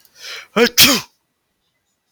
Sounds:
Sneeze